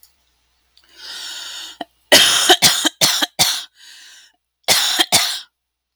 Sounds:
Cough